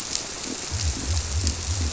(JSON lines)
{"label": "biophony", "recorder": "SoundTrap 300"}